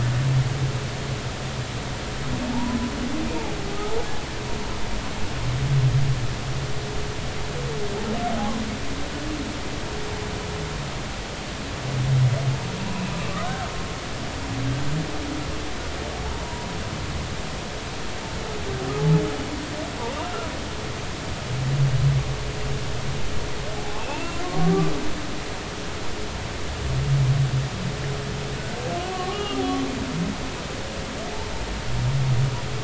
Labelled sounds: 2.5	2.8	humpback whale, 0.83 to 1.1 kHz
13.2	13.7	humpback whale, 1.1 to 1.6 kHz
16.4	16.7	humpback whale, 0.93 to 1.0 kHz
23.7	25.4	humpback whale, 0.80 to 2.8 kHz
29.0	29.6	humpback whale, 1.0 to 3.3 kHz

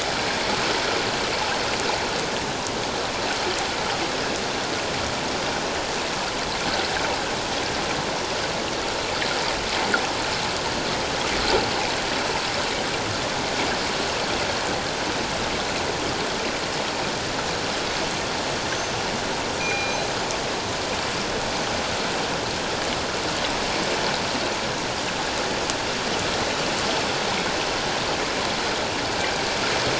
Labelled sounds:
19.5	20.1	killer whale, northern resident, G clan, 2.3 to 6.2 kHz

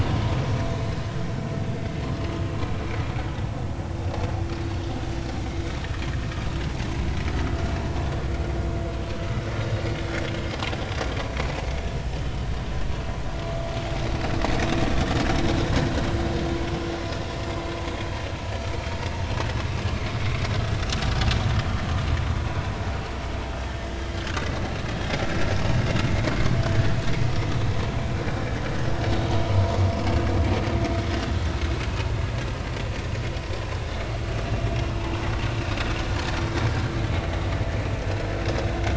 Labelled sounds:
1.7	2.0	vessel noise, 2.0 to 2.2 kHz
14.9	15.1	vessel noise, 3.5 to 3.6 kHz

